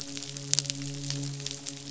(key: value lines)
label: biophony, midshipman
recorder: SoundTrap 500